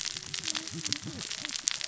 {"label": "biophony, cascading saw", "recorder": "SoundTrap 600 or HydroMoth"}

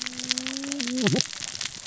{"label": "biophony, cascading saw", "recorder": "SoundTrap 600 or HydroMoth"}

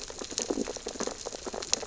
{"label": "biophony, sea urchins (Echinidae)", "recorder": "SoundTrap 600 or HydroMoth"}
{"label": "biophony, stridulation", "recorder": "SoundTrap 600 or HydroMoth"}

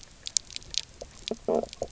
{"label": "biophony, knock croak", "recorder": "SoundTrap 300"}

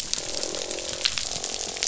{"label": "biophony, croak", "recorder": "SoundTrap 500"}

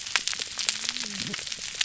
{"label": "biophony, whup", "recorder": "SoundTrap 300"}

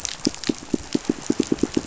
{"label": "biophony, pulse", "recorder": "SoundTrap 500"}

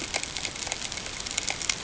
{"label": "ambient", "recorder": "HydroMoth"}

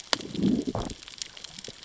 {"label": "biophony, growl", "recorder": "SoundTrap 600 or HydroMoth"}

